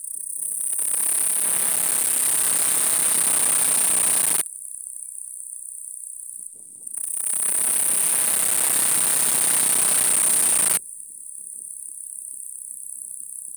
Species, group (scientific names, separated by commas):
Tettigonia caudata, Orthoptera